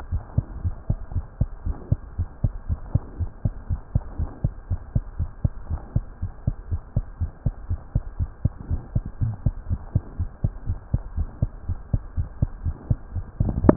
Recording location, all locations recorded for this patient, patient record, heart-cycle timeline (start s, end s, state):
tricuspid valve (TV)
aortic valve (AV)+pulmonary valve (PV)+tricuspid valve (TV)+mitral valve (MV)
#Age: Child
#Sex: Male
#Height: 82.0 cm
#Weight: 9.59 kg
#Pregnancy status: False
#Murmur: Absent
#Murmur locations: nan
#Most audible location: nan
#Systolic murmur timing: nan
#Systolic murmur shape: nan
#Systolic murmur grading: nan
#Systolic murmur pitch: nan
#Systolic murmur quality: nan
#Diastolic murmur timing: nan
#Diastolic murmur shape: nan
#Diastolic murmur grading: nan
#Diastolic murmur pitch: nan
#Diastolic murmur quality: nan
#Outcome: Abnormal
#Campaign: 2015 screening campaign
0.00	0.08	unannotated
0.08	0.22	S1
0.22	0.34	systole
0.34	0.48	S2
0.48	0.64	diastole
0.64	0.76	S1
0.76	0.86	systole
0.86	0.98	S2
0.98	1.12	diastole
1.12	1.26	S1
1.26	1.38	systole
1.38	1.48	S2
1.48	1.62	diastole
1.62	1.76	S1
1.76	1.88	systole
1.88	2.02	S2
2.02	2.16	diastole
2.16	2.28	S1
2.28	2.42	systole
2.42	2.52	S2
2.52	2.66	diastole
2.66	2.80	S1
2.80	2.88	systole
2.88	3.02	S2
3.02	3.18	diastole
3.18	3.30	S1
3.30	3.44	systole
3.44	3.54	S2
3.54	3.70	diastole
3.70	3.80	S1
3.80	3.92	systole
3.92	4.02	S2
4.02	4.16	diastole
4.16	4.30	S1
4.30	4.42	systole
4.42	4.52	S2
4.52	4.68	diastole
4.68	4.80	S1
4.80	4.92	systole
4.92	5.04	S2
5.04	5.16	diastole
5.16	5.30	S1
5.30	5.42	systole
5.42	5.52	S2
5.52	5.68	diastole
5.68	5.80	S1
5.80	5.94	systole
5.94	6.06	S2
6.06	6.22	diastole
6.22	6.32	S1
6.32	6.44	systole
6.44	6.56	S2
6.56	6.70	diastole
6.70	6.82	S1
6.82	6.96	systole
6.96	7.06	S2
7.06	7.22	diastole
7.22	7.32	S1
7.32	7.46	systole
7.46	7.56	S2
7.56	7.68	diastole
7.68	7.80	S1
7.80	7.90	systole
7.90	8.04	S2
8.04	8.20	diastole
8.20	8.30	S1
8.30	8.44	systole
8.44	8.54	S2
8.54	8.68	diastole
8.68	8.82	S1
8.82	8.94	systole
8.94	9.04	S2
9.04	9.22	diastole
9.22	9.36	S1
9.36	9.44	systole
9.44	9.56	S2
9.56	9.68	diastole
9.68	9.82	S1
9.82	9.94	systole
9.94	10.04	S2
10.04	10.18	diastole
10.18	10.30	S1
10.30	10.42	systole
10.42	10.52	S2
10.52	10.68	diastole
10.68	10.78	S1
10.78	10.92	systole
10.92	11.02	S2
11.02	11.16	diastole
11.16	11.28	S1
11.28	11.38	systole
11.38	11.52	S2
11.52	11.68	diastole
11.68	11.80	S1
11.80	11.92	systole
11.92	12.02	S2
12.02	12.16	diastole
12.16	12.28	S1
12.28	12.38	systole
12.38	12.52	S2
12.52	12.64	diastole
12.64	12.76	S1
12.76	12.86	systole
12.86	12.98	S2
12.98	13.14	diastole
13.14	13.26	S1
13.26	13.76	unannotated